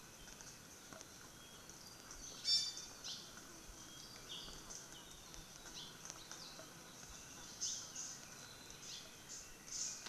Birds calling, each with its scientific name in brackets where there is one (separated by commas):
Apapane (Himatione sanguinea), Hawaii Creeper (Loxops mana), Iiwi (Drepanis coccinea)